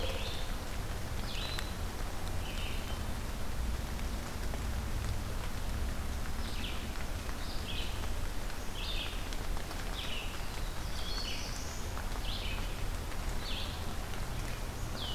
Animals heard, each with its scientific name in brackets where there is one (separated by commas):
Black-throated Blue Warbler (Setophaga caerulescens), Red-eyed Vireo (Vireo olivaceus)